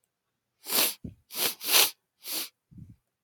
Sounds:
Sniff